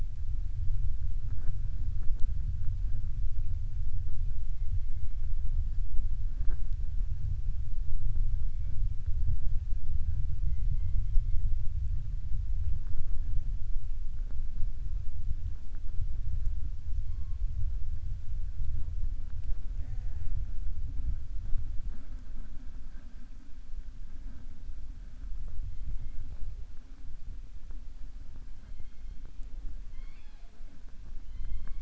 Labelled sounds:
29.8	30.7	killer whale, southern resident, 0.47 to 5.1 kHz

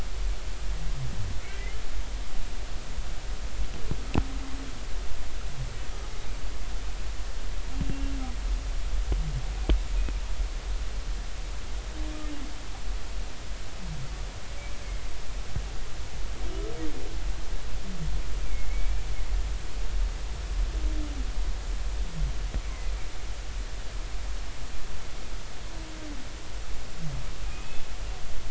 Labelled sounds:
1.4	1.8	humpback whale, 1.9 to 2.4 kHz
7.9	8.1	humpback whale, 2.7 to 2.8 kHz
10.0	10.2	humpback whale, 2.3 to 2.6 kHz
18.4	19.0	humpback whale, 2.1 to 2.4 kHz
22.6	22.9	humpback whale, 2.0 to 2.3 kHz
27.4	27.8	humpback whale, 2.4 to 2.6 kHz

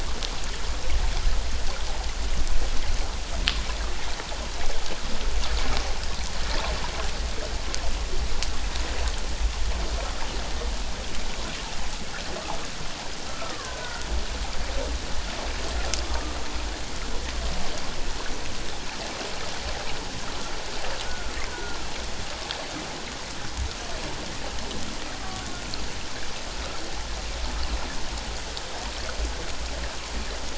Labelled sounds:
13.3	14.1	killer whale, Bigg's (transient), 0.97 to 1.5 kHz
16.0	16.4	killer whale, Bigg's (transient), 1.1 to 1.3 kHz
21.0	21.8	killer whale, Bigg's (transient), 1.3 to 1.6 kHz

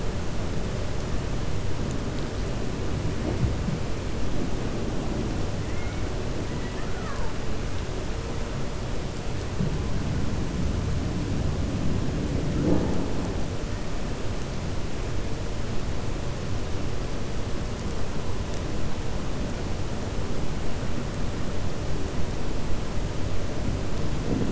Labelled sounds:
6.5	6.9	killer whale, 0.99 to 2.9 kHz

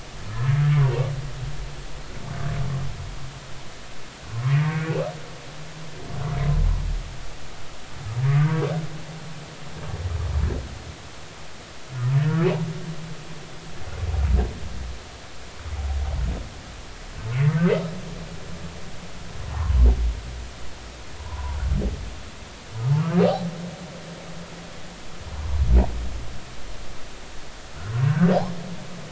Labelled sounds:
0.8	1.0	humpback whale, 0.90 to 1.2 kHz
8.4	8.7	humpback whale, 1.4 to 1.6 kHz
21.3	21.6	humpback whale, 0.90 to 1.1 kHz
23.2	23.5	humpback whale, 0.80 to 0.90 kHz
27.8	28.3	humpback whale, 0.99 to 1.6 kHz

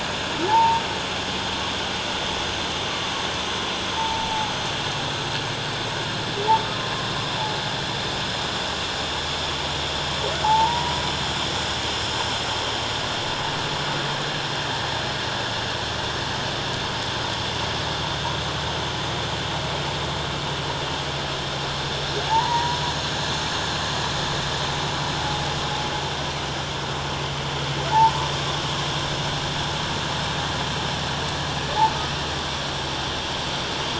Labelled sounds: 0.5	0.8	humpback whale, 0.81 to 0.97 kHz
3.9	4.5	humpback whale, 0.78 to 0.97 kHz
10.4	11.0	humpback whale, 0.78 to 1.1 kHz
22.3	22.8	humpback whale, 0.78 to 2.0 kHz

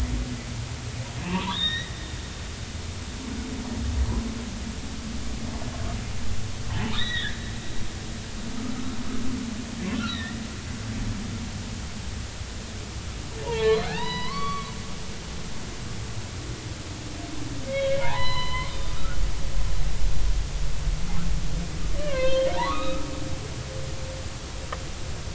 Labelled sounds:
1.2	1.9	humpback whale, 0.86 to 3.9 kHz
6.7	7.4	humpback whale, 0.83 to 4.0 kHz
10.1	10.4	humpback whale, 1.7 to 2.0 kHz
11.0	11.3	humpback whale, 3.4 to 4.1 kHz
13.4	14.7	humpback whale, 0.80 to 5.0 kHz
17.7	19.7	humpback whale, 0.80 to 4.9 kHz
22.0	23.1	humpback whale, 0.83 to 4.3 kHz

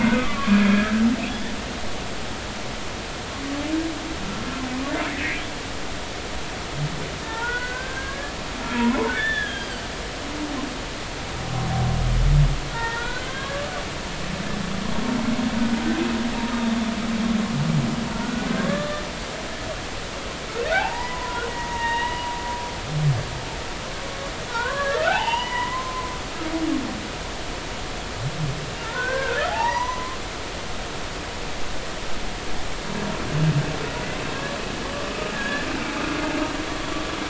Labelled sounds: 0.0	0.9	humpback whale, 1.1 to 2.2 kHz
7.2	8.3	humpback whale, 0.83 to 2.1 kHz
9.1	9.8	humpback whale, 1.5 to 3.6 kHz
12.7	13.7	humpback whale, 0.86 to 2.0 kHz
18.1	19.0	humpback whale, 1.1 to 1.8 kHz
20.7	22.3	humpback whale, 0.80 to 3.0 kHz
24.5	26.1	humpback whale, 0.80 to 4.9 kHz
28.8	30.2	humpback whale, 0.80 to 6.1 kHz
35.1	35.7	humpback whale, 1.2 to 1.8 kHz

